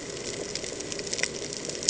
{"label": "ambient", "recorder": "HydroMoth"}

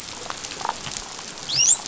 {"label": "biophony, dolphin", "recorder": "SoundTrap 500"}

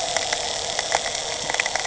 {"label": "anthrophony, boat engine", "recorder": "HydroMoth"}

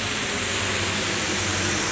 {"label": "anthrophony, boat engine", "recorder": "SoundTrap 500"}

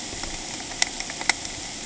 {"label": "ambient", "recorder": "HydroMoth"}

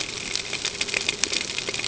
{"label": "ambient", "recorder": "HydroMoth"}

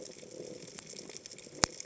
{"label": "biophony", "recorder": "HydroMoth"}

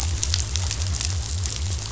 {"label": "biophony", "recorder": "SoundTrap 500"}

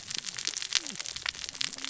{"label": "biophony, cascading saw", "recorder": "SoundTrap 600 or HydroMoth"}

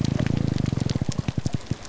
{"label": "biophony, grouper groan", "recorder": "SoundTrap 300"}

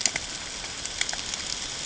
{"label": "ambient", "recorder": "HydroMoth"}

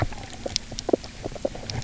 {"label": "biophony, knock croak", "recorder": "SoundTrap 300"}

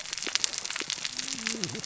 {"label": "biophony, cascading saw", "recorder": "SoundTrap 600 or HydroMoth"}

